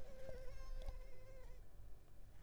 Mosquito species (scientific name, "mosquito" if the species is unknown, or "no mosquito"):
Culex tigripes